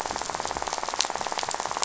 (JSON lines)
{"label": "biophony, rattle", "recorder": "SoundTrap 500"}